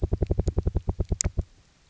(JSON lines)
{"label": "biophony, knock", "recorder": "SoundTrap 300"}